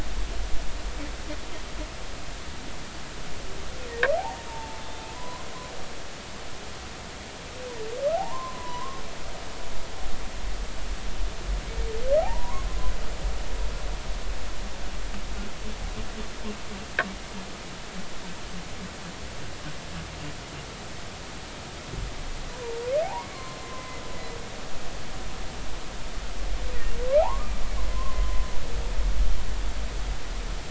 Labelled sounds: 4.2	4.8	humpback whale, 0.80 to 0.99 kHz
5.1	5.5	humpback whale, 0.93 to 1.1 kHz
8.1	9.0	humpback whale, 0.80 to 1.2 kHz
12.2	12.7	humpback whale, 0.80 to 1.2 kHz
22.5	24.0	humpback whale, 0.80 to 2.1 kHz
27.2	27.5	humpback whale, 0.80 to 1.3 kHz
27.9	28.4	humpback whale, 0.99 to 1.1 kHz

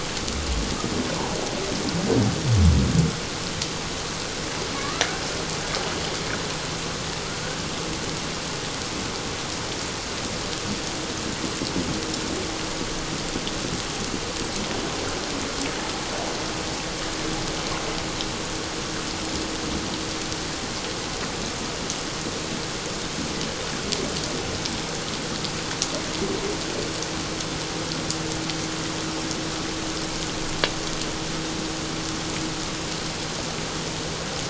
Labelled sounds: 4.8	5.0	killer whale, Bigg's (transient), call T01, 1.1 to 1.4 kHz

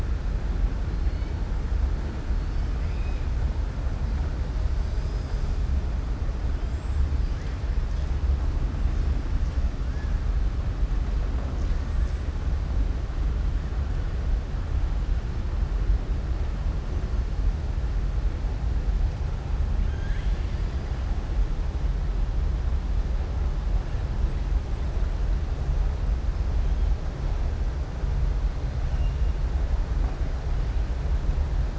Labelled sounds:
19.8	20.8	killer whale, southern resident, 1.6 to 4.9 kHz

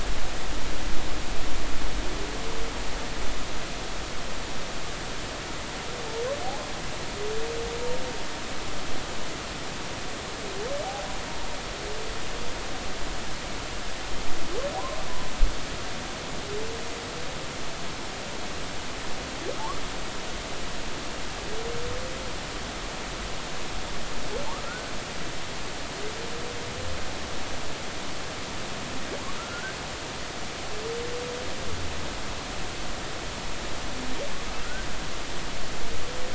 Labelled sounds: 10.8	11.1	humpback whale, 0.80 to 0.86 kHz
14.7	15.0	humpback whale, 0.80 to 1.1 kHz
24.6	24.9	humpback whale, 1.3 to 1.6 kHz
29.4	29.7	humpback whale, 1.3 to 1.6 kHz
34.6	34.9	humpback whale, 1.3 to 1.6 kHz

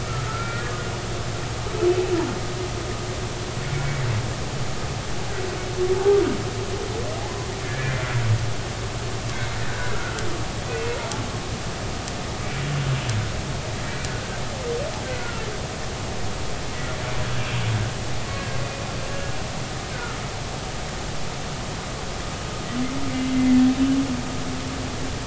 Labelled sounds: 0.0	0.7	humpback whale, 1.2 to 1.5 kHz
3.7	4.0	humpback whale, 2.2 to 2.3 kHz
7.6	7.9	humpback whale, 1.5 to 1.9 kHz
9.9	10.2	humpback whale, 1.3 to 1.5 kHz
10.7	11.0	humpback whale, 1.4 to 1.7 kHz
12.4	12.6	humpback whale, 2.2 to 2.4 kHz
15.2	15.5	humpback whale, 1.2 to 1.5 kHz
19.9	20.2	humpback whale, 1.2 to 1.6 kHz

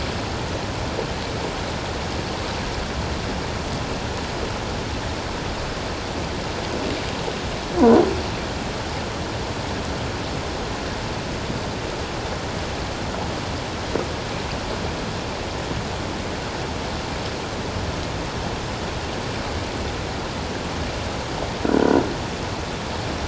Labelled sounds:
21.6	22.0	croaking sound likely from a nearby submerged object, 1.3 to 1.7 kHz

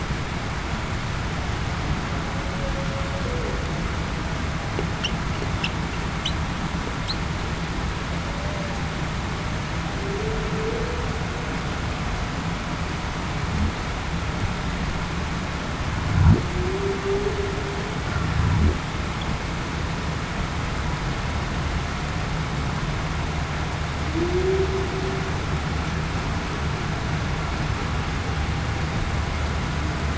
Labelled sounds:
8.3	8.7	humpback whale, 0.56 to 0.63 kHz
9.9	10.5	humpback whale, 0.35 to 0.47 kHz
16.5	17.0	humpback whale, 0.33 to 0.45 kHz
24.1	24.7	humpback whale, 0.28 to 0.42 kHz

